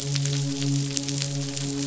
{"label": "biophony, midshipman", "recorder": "SoundTrap 500"}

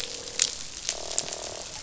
{"label": "biophony, croak", "recorder": "SoundTrap 500"}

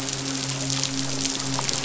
{"label": "biophony, midshipman", "recorder": "SoundTrap 500"}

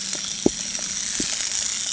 {"label": "anthrophony, boat engine", "recorder": "HydroMoth"}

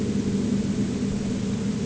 {"label": "anthrophony, boat engine", "recorder": "HydroMoth"}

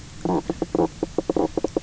{"label": "biophony, knock croak", "recorder": "SoundTrap 300"}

